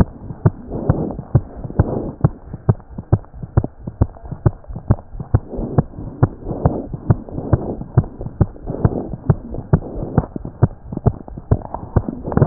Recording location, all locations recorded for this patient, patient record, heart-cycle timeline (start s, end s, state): pulmonary valve (PV)
aortic valve (AV)+pulmonary valve (PV)+tricuspid valve (TV)+mitral valve (MV)
#Age: Child
#Sex: Female
#Height: 118.0 cm
#Weight: 17.0 kg
#Pregnancy status: False
#Murmur: Present
#Murmur locations: mitral valve (MV)
#Most audible location: mitral valve (MV)
#Systolic murmur timing: Holosystolic
#Systolic murmur shape: Plateau
#Systolic murmur grading: I/VI
#Systolic murmur pitch: Medium
#Systolic murmur quality: Blowing
#Diastolic murmur timing: nan
#Diastolic murmur shape: nan
#Diastolic murmur grading: nan
#Diastolic murmur pitch: nan
#Diastolic murmur quality: nan
#Outcome: Abnormal
#Campaign: 2015 screening campaign
0.00	2.50	unannotated
2.50	2.59	S1
2.59	2.66	systole
2.66	2.76	S2
2.76	2.96	diastole
2.96	3.04	S1
3.04	3.10	systole
3.10	3.20	S2
3.20	3.40	diastole
3.40	3.47	S1
3.47	3.54	systole
3.54	3.63	S2
3.63	3.85	diastole
3.85	3.92	S1
3.92	3.99	systole
3.99	4.09	S2
4.09	4.30	diastole
4.30	4.36	S1
4.36	4.44	systole
4.44	4.53	S2
4.53	4.73	diastole
4.73	4.80	S1
4.80	4.87	systole
4.87	4.97	S2
4.97	5.17	diastole
5.17	5.24	S1
5.24	5.32	systole
5.32	5.41	S2
5.41	12.46	unannotated